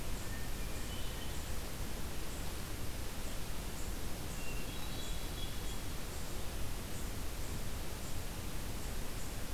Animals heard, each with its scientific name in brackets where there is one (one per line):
Hermit Thrush (Catharus guttatus)